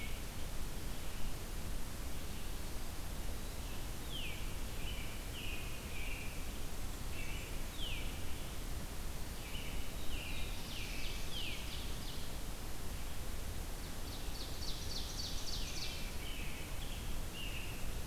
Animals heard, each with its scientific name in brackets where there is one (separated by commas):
Black-throated Blue Warbler (Setophaga caerulescens), Red-eyed Vireo (Vireo olivaceus), Eastern Wood-Pewee (Contopus virens), Veery (Catharus fuscescens), Ovenbird (Seiurus aurocapilla), American Robin (Turdus migratorius)